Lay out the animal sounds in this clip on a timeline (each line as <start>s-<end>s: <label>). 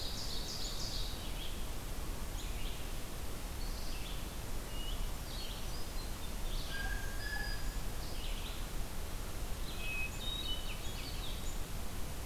0.0s-0.6s: Black-throated Green Warbler (Setophaga virens)
0.0s-1.3s: Ovenbird (Seiurus aurocapilla)
0.0s-1.7s: Red-eyed Vireo (Vireo olivaceus)
2.1s-12.3s: Red-eyed Vireo (Vireo olivaceus)
4.6s-6.4s: unidentified call
6.3s-8.0s: Black-throated Green Warbler (Setophaga virens)
6.6s-7.8s: Blue Jay (Cyanocitta cristata)
9.7s-11.3s: Hermit Thrush (Catharus guttatus)